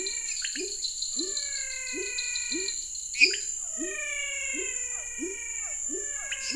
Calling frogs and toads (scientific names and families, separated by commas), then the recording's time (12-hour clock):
Dendropsophus nanus (Hylidae), Leptodactylus labyrinthicus (Leptodactylidae), Physalaemus albonotatus (Leptodactylidae), Dendropsophus minutus (Hylidae), Physalaemus cuvieri (Leptodactylidae)
7:30pm